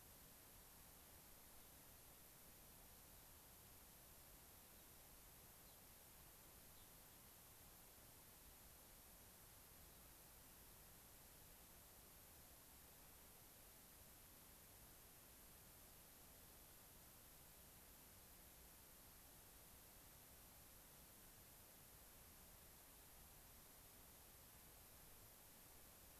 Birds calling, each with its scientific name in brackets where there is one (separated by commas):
Gray-crowned Rosy-Finch (Leucosticte tephrocotis)